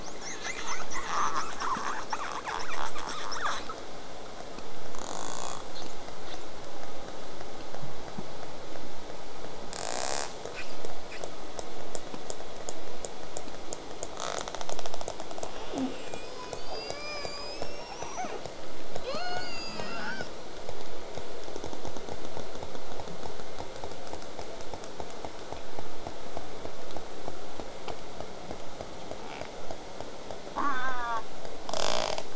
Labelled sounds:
0.0	3.8	killer whale, southern resident, J pod, 0.20 to 8.0 kHz
4.9	5.6	killer whale, southern resident, J pod, rasp, 0.12 to 8.0 kHz
5.0	6.4	killer whale, southern resident, J pod, 2.3 to 5.0 kHz
9.7	10.3	killer whale, southern resident, J pod, rasp, 0.19 to 8.0 kHz
10.5	11.2	killer whale, southern resident, J pod, 1.1 to 3.1 kHz
14.2	15.5	killer whale, southern resident, J pod, rasp, 0.23 to 8.0 kHz
15.7	18.4	killer whale, southern resident, J pod, 0.08 to 8.0 kHz
19.0	20.2	killer whale, southern resident, J pod, 0.42 to 8.0 kHz
30.6	31.2	killer whale, southern resident, J pod, call S04, 0.08 to 3.8 kHz
31.7	32.2	killer whale, southern resident, J pod, rasp, 0.19 to 8.0 kHz

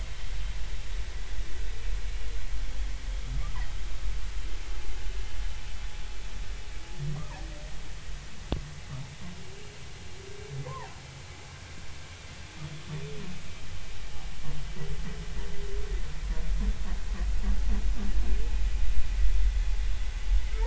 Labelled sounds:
10.6	10.9	humpback whale, 0.80 to 1.1 kHz

